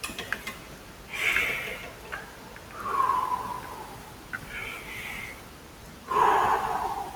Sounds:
Sigh